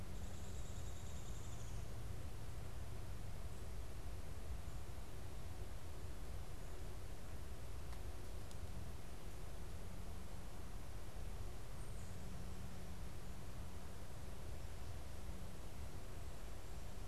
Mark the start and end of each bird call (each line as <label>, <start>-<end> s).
Downy Woodpecker (Dryobates pubescens), 0.0-1.9 s